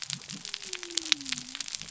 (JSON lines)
{"label": "biophony", "recorder": "SoundTrap 300"}